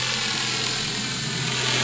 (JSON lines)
{"label": "anthrophony, boat engine", "recorder": "SoundTrap 500"}